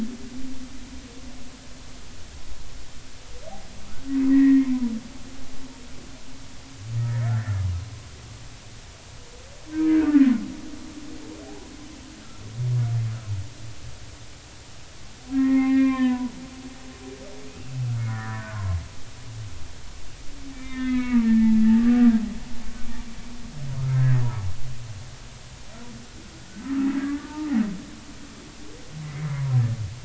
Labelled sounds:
4.3	4.7	humpback whale, 1.8 to 2.3 kHz
7.3	7.6	humpback whale, 1.3 to 2.0 kHz
9.7	10.2	humpback whale, 1.3 to 2.5 kHz
15.3	16.4	humpback whale, 0.80 to 2.7 kHz
16.7	17.0	humpback whale, 1.5 to 1.7 kHz
18.0	18.8	humpback whale, 0.90 to 1.9 kHz
20.5	22.1	humpback whale, 0.83 to 3.7 kHz
23.9	24.2	humpback whale, 1.5 to 1.7 kHz
27.0	27.5	humpback whale, 1.1 to 2.0 kHz
29.0	29.3	humpback whale, 2.0 to 2.1 kHz

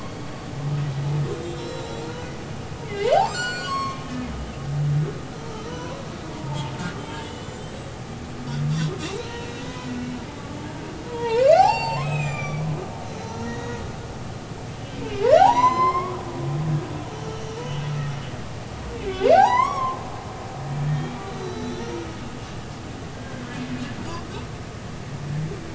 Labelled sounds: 1.4	2.3	humpback whale, 1.3 to 5.8 kHz
2.8	4.3	humpback whale, 1.0 to 7.8 kHz
5.6	6.7	humpback whale, 0.83 to 1.2 kHz
7.0	7.9	humpback whale, 2.9 to 8.0 kHz
8.8	9.9	humpback whale, 0.90 to 4.1 kHz
11.1	12.7	humpback whale, 0.80 to 7.8 kHz
13.2	13.8	humpback whale, 1.8 to 6.7 kHz
15.4	16.2	humpback whale, 0.80 to 7.3 kHz
17.3	17.6	humpback whale, 2.8 to 5.9 kHz
18.9	20.0	humpback whale, 0.80 to 6.8 kHz
20.8	21.1	humpback whale, 1.7 to 1.9 kHz
21.4	22.0	humpback whale, 3.8 to 5.8 kHz
23.1	23.4	humpback whale, 1.5 to 1.7 kHz

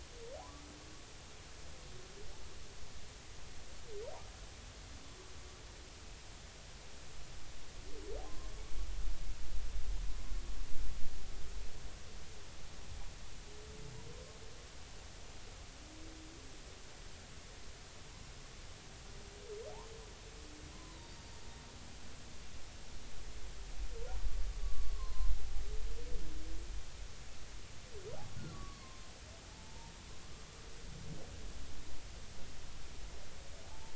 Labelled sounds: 0.4	0.6	humpback whale, 0.80 to 1.2 kHz
8.2	8.5	humpback whale, 0.99 to 1.1 kHz
20.7	21.1	humpback whale, 0.90 to 1.1 kHz
24.6	25.3	humpback whale, 0.99 to 4.3 kHz
28.5	29.9	humpback whale, 0.83 to 1.2 kHz

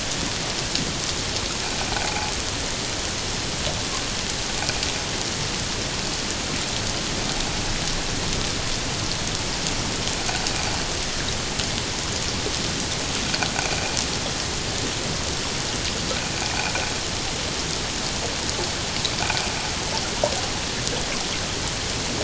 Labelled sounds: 2.0	2.3	water noise, 0.78 to 0.91 kHz

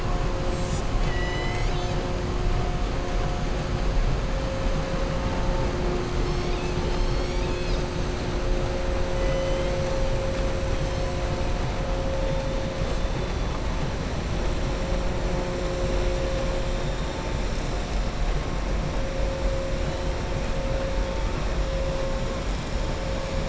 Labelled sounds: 0.9	2.0	killer whale, southern resident, 1.9 to 7.8 kHz
9.1	9.7	killer whale, southern resident, 1.3 to 3.2 kHz

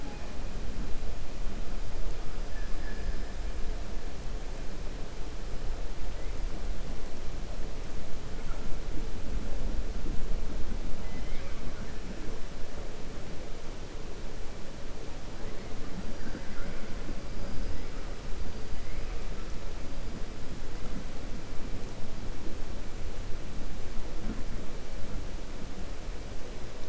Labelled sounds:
2.4	3.2	killer whale, 1.2 to 2.4 kHz
11.0	11.6	killer whale, 0.57 to 4.3 kHz

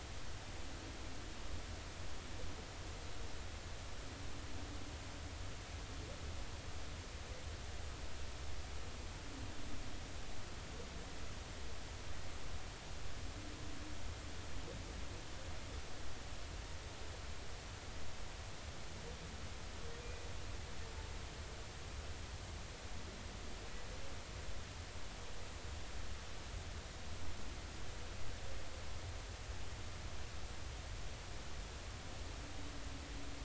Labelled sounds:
20.0	20.3	humpback whale, 2.4 to 2.5 kHz

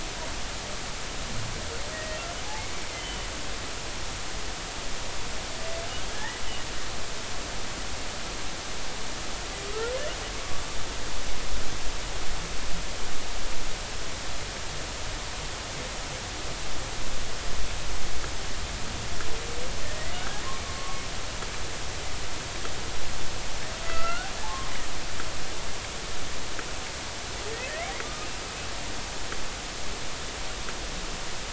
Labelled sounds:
1.9	3.3	humpback whale, 1.8 to 3.1 kHz
6.1	6.4	humpback whale, 1.6 to 2.0 kHz
20.2	21.0	humpback whale, 1.0 to 1.7 kHz
23.8	24.7	humpback whale, 1.0 to 2.1 kHz
27.7	28.3	humpback whale, 1.2 to 2.4 kHz

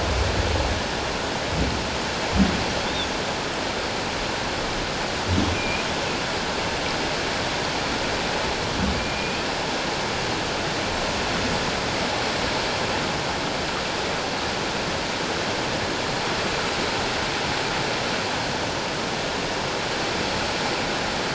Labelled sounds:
5.5	5.9	humpback whale, 2.3 to 2.5 kHz
9.0	9.4	humpback whale, 2.3 to 2.5 kHz

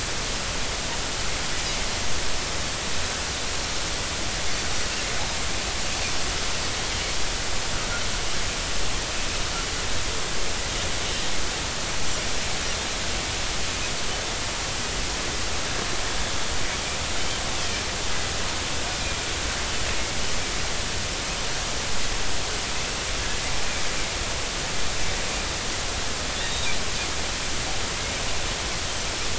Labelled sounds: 26.4	26.8	Pacific white-sided dolphin, 3.4 to 3.9 kHz

